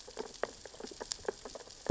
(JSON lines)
{"label": "biophony, sea urchins (Echinidae)", "recorder": "SoundTrap 600 or HydroMoth"}